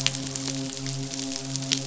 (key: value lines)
label: biophony, midshipman
recorder: SoundTrap 500